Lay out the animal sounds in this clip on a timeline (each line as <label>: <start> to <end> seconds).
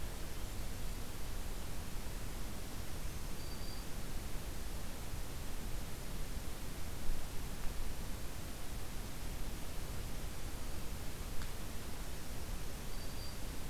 Black-throated Green Warbler (Setophaga virens): 3.0 to 4.0 seconds
Black-throated Green Warbler (Setophaga virens): 11.9 to 13.7 seconds